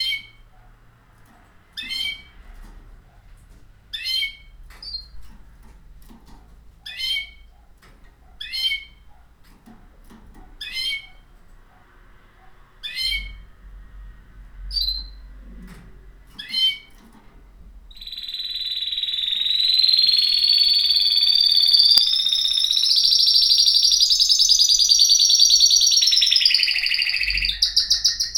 Are there people talking?
no